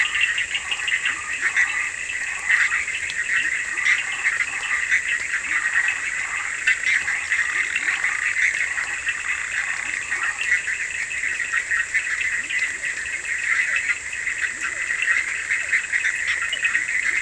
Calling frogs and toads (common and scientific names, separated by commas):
Burmeister's tree frog (Boana prasina), Bischoff's tree frog (Boana bischoffi), Cochran's lime tree frog (Sphaenorhynchus surdus), Leptodactylus latrans, Physalaemus cuvieri